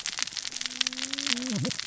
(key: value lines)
label: biophony, cascading saw
recorder: SoundTrap 600 or HydroMoth